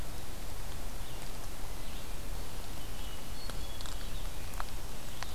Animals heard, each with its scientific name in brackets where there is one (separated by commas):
Hermit Thrush (Catharus guttatus), Red-eyed Vireo (Vireo olivaceus)